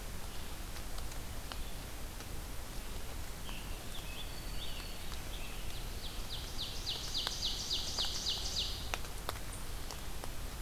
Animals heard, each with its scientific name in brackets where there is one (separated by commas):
Ovenbird (Seiurus aurocapilla), Scarlet Tanager (Piranga olivacea), Black-throated Green Warbler (Setophaga virens)